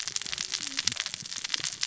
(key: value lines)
label: biophony, cascading saw
recorder: SoundTrap 600 or HydroMoth